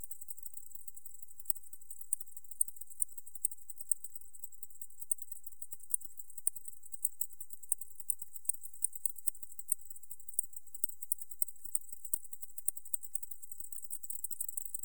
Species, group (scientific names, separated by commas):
Decticus albifrons, Orthoptera